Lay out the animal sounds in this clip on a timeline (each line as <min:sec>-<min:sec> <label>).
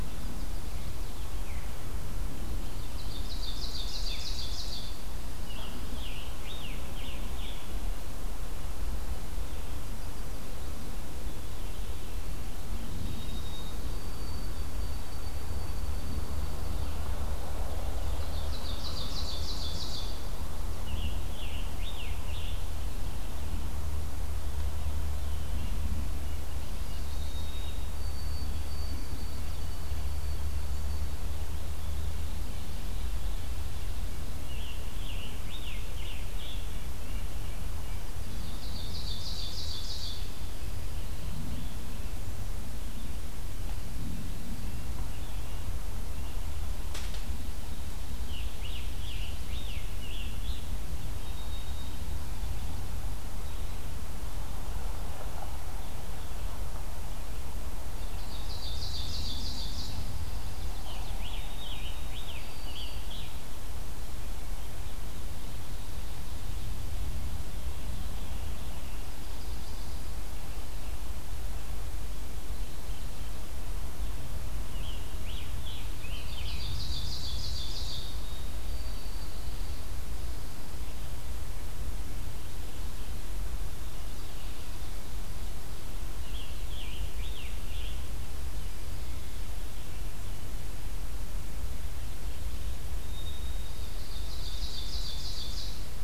0:02.5-0:05.0 Ovenbird (Seiurus aurocapilla)
0:05.0-0:08.0 Scarlet Tanager (Piranga olivacea)
0:12.7-0:17.2 White-throated Sparrow (Zonotrichia albicollis)
0:17.8-0:20.3 Ovenbird (Seiurus aurocapilla)
0:20.6-0:23.0 Scarlet Tanager (Piranga olivacea)
0:27.0-0:31.4 White-throated Sparrow (Zonotrichia albicollis)
0:34.1-0:36.9 Scarlet Tanager (Piranga olivacea)
0:36.7-0:38.2 Red-breasted Nuthatch (Sitta canadensis)
0:38.1-0:40.7 Ovenbird (Seiurus aurocapilla)
0:48.1-0:50.9 Scarlet Tanager (Piranga olivacea)
0:51.0-0:52.7 White-throated Sparrow (Zonotrichia albicollis)
0:57.8-1:00.0 Ovenbird (Seiurus aurocapilla)
1:00.3-1:01.3 Chestnut-sided Warbler (Setophaga pensylvanica)
1:00.9-1:03.2 Scarlet Tanager (Piranga olivacea)
1:01.4-1:03.1 White-throated Sparrow (Zonotrichia albicollis)
1:14.5-1:16.9 Scarlet Tanager (Piranga olivacea)
1:16.0-1:18.2 Ovenbird (Seiurus aurocapilla)
1:18.0-1:19.5 White-throated Sparrow (Zonotrichia albicollis)
1:26.1-1:28.1 Scarlet Tanager (Piranga olivacea)
1:33.0-1:34.6 White-throated Sparrow (Zonotrichia albicollis)
1:33.2-1:36.0 Ovenbird (Seiurus aurocapilla)